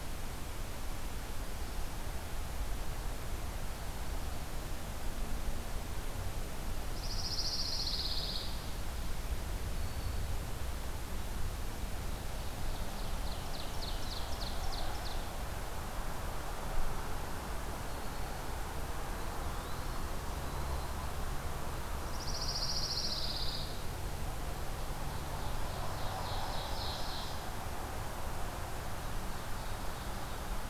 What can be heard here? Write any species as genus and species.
Setophaga pinus, Setophaga virens, Seiurus aurocapilla, Contopus virens